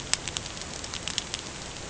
{"label": "ambient", "recorder": "HydroMoth"}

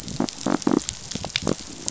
{"label": "biophony", "recorder": "SoundTrap 500"}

